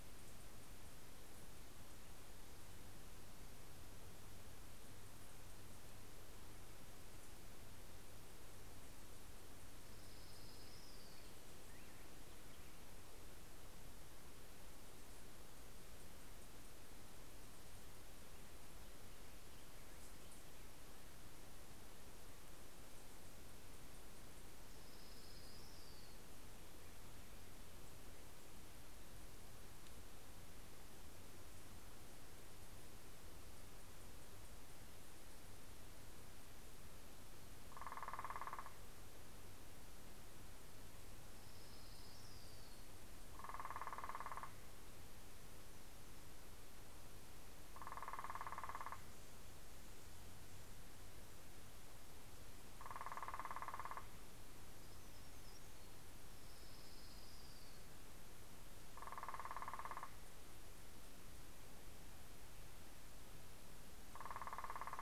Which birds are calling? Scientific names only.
Leiothlypis celata, Setophaga occidentalis